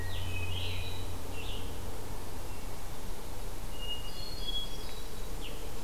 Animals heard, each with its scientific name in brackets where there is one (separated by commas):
Hermit Thrush (Catharus guttatus), Scarlet Tanager (Piranga olivacea)